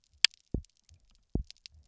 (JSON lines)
{"label": "biophony, double pulse", "recorder": "SoundTrap 300"}